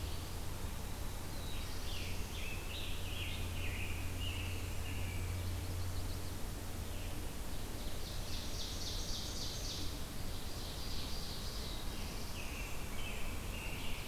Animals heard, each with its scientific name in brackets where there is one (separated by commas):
Yellow-rumped Warbler (Setophaga coronata), Scarlet Tanager (Piranga olivacea), Ovenbird (Seiurus aurocapilla), American Robin (Turdus migratorius), Black-throated Blue Warbler (Setophaga caerulescens)